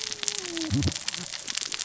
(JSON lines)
{"label": "biophony, cascading saw", "recorder": "SoundTrap 600 or HydroMoth"}